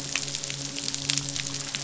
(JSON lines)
{"label": "biophony, midshipman", "recorder": "SoundTrap 500"}